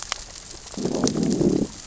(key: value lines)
label: biophony, growl
recorder: SoundTrap 600 or HydroMoth